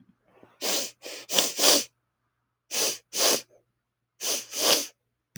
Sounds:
Sniff